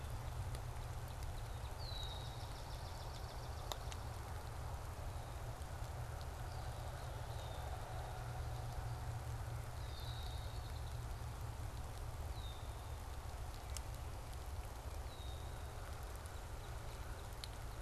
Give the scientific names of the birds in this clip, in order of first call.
Cardinalis cardinalis, Agelaius phoeniceus, Melospiza georgiana